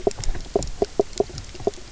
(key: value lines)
label: biophony, knock croak
recorder: SoundTrap 300